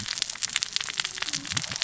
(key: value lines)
label: biophony, cascading saw
recorder: SoundTrap 600 or HydroMoth